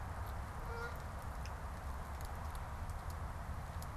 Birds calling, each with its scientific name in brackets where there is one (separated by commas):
Canada Goose (Branta canadensis)